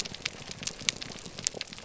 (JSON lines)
{"label": "biophony", "recorder": "SoundTrap 300"}